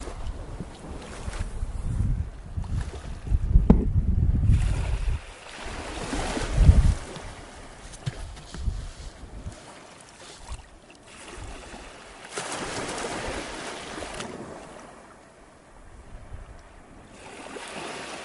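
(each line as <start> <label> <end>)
0.0 Water waves and wind blowing. 2.3
2.6 The sound of waves hitting the seashore. 7.3
7.7 The calm sea is heard. 12.3
12.4 A heavy wave crashes at the seashore. 14.6
14.8 Calm sea sounds. 17.4
17.5 Water waves. 18.2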